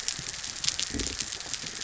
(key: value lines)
label: biophony
recorder: SoundTrap 300